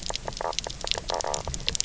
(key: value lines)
label: biophony, knock croak
recorder: SoundTrap 300